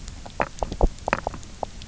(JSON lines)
{"label": "biophony, knock croak", "recorder": "SoundTrap 300"}